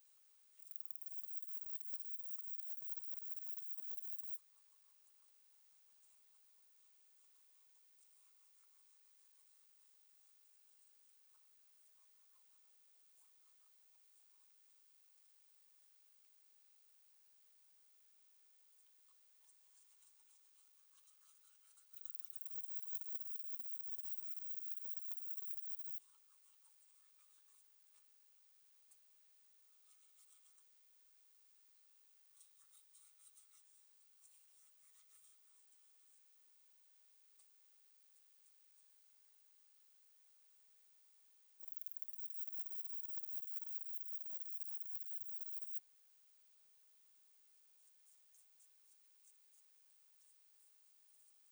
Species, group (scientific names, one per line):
Parnassiana chelmos
Orthoptera